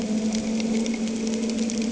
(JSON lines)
{"label": "anthrophony, boat engine", "recorder": "HydroMoth"}